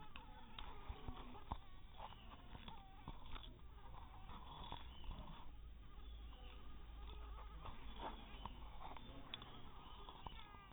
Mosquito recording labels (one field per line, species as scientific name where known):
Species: mosquito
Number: one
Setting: cup